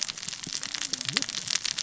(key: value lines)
label: biophony, cascading saw
recorder: SoundTrap 600 or HydroMoth